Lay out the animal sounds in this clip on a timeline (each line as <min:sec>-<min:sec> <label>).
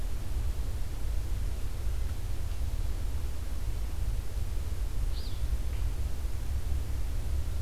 0:05.0-0:05.5 Alder Flycatcher (Empidonax alnorum)